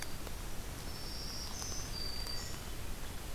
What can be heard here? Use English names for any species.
Winter Wren, Black-throated Green Warbler, Hermit Thrush